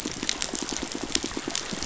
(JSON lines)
{"label": "biophony, pulse", "recorder": "SoundTrap 500"}